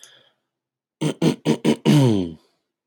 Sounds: Throat clearing